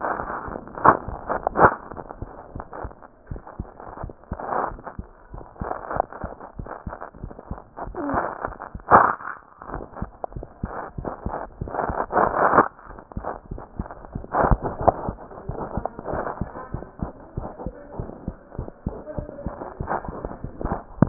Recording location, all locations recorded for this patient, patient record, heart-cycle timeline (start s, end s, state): mitral valve (MV)
aortic valve (AV)+pulmonary valve (PV)+tricuspid valve (TV)+mitral valve (MV)
#Age: Child
#Sex: Female
#Height: 118.0 cm
#Weight: 20.6 kg
#Pregnancy status: False
#Murmur: Absent
#Murmur locations: nan
#Most audible location: nan
#Systolic murmur timing: nan
#Systolic murmur shape: nan
#Systolic murmur grading: nan
#Systolic murmur pitch: nan
#Systolic murmur quality: nan
#Diastolic murmur timing: nan
#Diastolic murmur shape: nan
#Diastolic murmur grading: nan
#Diastolic murmur pitch: nan
#Diastolic murmur quality: nan
#Outcome: Abnormal
#Campaign: 2015 screening campaign
0.00	2.92	unannotated
2.92	3.30	diastole
3.30	3.40	S1
3.40	3.58	systole
3.58	3.68	S2
3.68	4.01	diastole
4.01	4.15	S1
4.15	4.29	systole
4.29	4.39	S2
4.39	4.67	diastole
4.67	4.79	S1
4.79	4.96	systole
4.96	5.03	S2
5.03	5.32	diastole
5.32	5.44	S1
5.44	5.60	systole
5.60	5.70	S2
5.70	5.94	diastole
5.94	6.05	S1
6.05	6.22	systole
6.22	6.30	S2
6.30	6.57	diastole
6.57	6.67	S1
6.67	6.83	systole
6.83	6.91	S2
6.91	7.22	diastole
7.22	7.32	S1
7.32	7.50	systole
7.50	7.60	S2
7.60	7.83	diastole
7.83	7.96	S1
7.96	21.09	unannotated